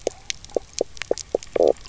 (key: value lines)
label: biophony, knock croak
recorder: SoundTrap 300